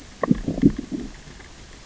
{"label": "biophony, growl", "recorder": "SoundTrap 600 or HydroMoth"}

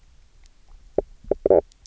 {"label": "biophony, knock croak", "recorder": "SoundTrap 300"}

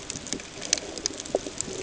{"label": "ambient", "recorder": "HydroMoth"}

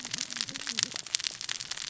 {"label": "biophony, cascading saw", "recorder": "SoundTrap 600 or HydroMoth"}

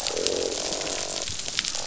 {"label": "biophony, croak", "recorder": "SoundTrap 500"}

